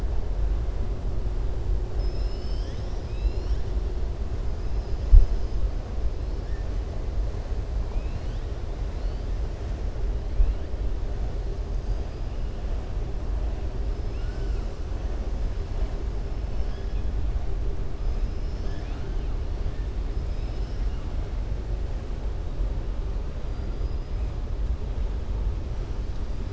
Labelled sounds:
4.7	5.4	killer whale, southern resident, 4.1 to 6.2 kHz
7.8	8.5	killer whale, southern resident, 2.1 to 5.2 kHz
18.2	19.3	killer whale, southern resident, 1.3 to 6.5 kHz
20.2	21.1	killer whale, southern resident, 1.9 to 6.1 kHz
23.5	24.1	killer whale, southern resident, 4.7 to 5.1 kHz

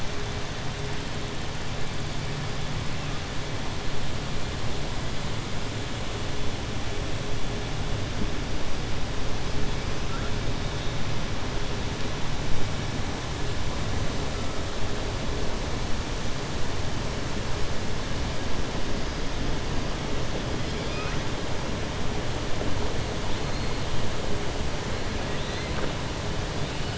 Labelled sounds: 20.6	21.2	killer whale, southern resident, 1.2 to 5.7 kHz

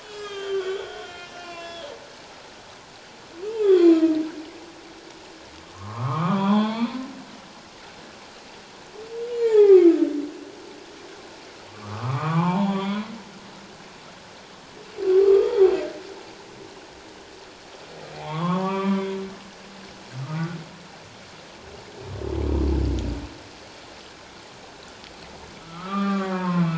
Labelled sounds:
0.0	1.9	humpback whale, 0.94 to 5.6 kHz
3.6	4.1	humpback whale, 1.0 to 4.3 kHz
5.7	6.9	humpback whale, 0.78 to 4.5 kHz
9.3	9.9	humpback whale, 0.78 to 3.4 kHz
11.7	13.0	humpback whale, 0.78 to 3.7 kHz
15.2	15.5	humpback whale, 1.1 to 1.3 kHz
18.1	19.2	humpback whale, 0.78 to 3.6 kHz
20.3	20.6	humpback whale, 1.3 to 1.5 kHz
25.8	26.5	humpback whale, 1.6 to 2.4 kHz

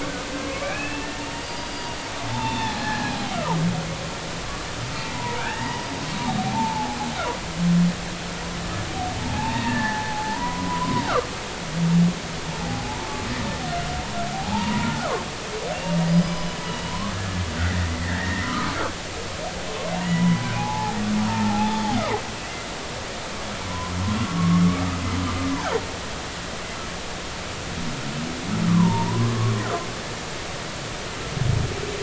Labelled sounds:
0.0	1.1	humpback whale, 0.99 to 2.8 kHz
1.4	3.1	humpback whale, 0.80 to 4.8 kHz
5.1	7.0	humpback whale, 0.80 to 4.9 kHz
9.2	11.1	humpback whale, 0.80 to 1.9 kHz
12.5	13.3	humpback whale, 0.80 to 1.2 kHz
14.3	14.9	humpback whale, 0.80 to 1.0 kHz
16.1	17.4	humpback whale, 1.6 to 5.1 kHz
18.0	18.8	humpback whale, 0.99 to 2.1 kHz
19.9	21.8	humpback whale, 0.80 to 3.0 kHz
23.7	24.6	humpback whale, 0.93 to 1.2 kHz
28.7	29.3	humpback whale, 0.86 to 1.3 kHz

